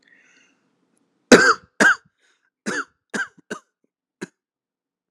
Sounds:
Cough